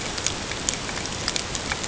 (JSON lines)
{"label": "ambient", "recorder": "HydroMoth"}